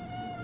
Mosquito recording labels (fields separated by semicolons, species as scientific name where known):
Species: Aedes aegypti; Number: one; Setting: insect culture